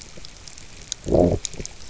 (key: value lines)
label: biophony, low growl
recorder: SoundTrap 300